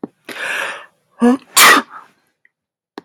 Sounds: Sneeze